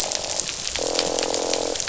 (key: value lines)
label: biophony, croak
recorder: SoundTrap 500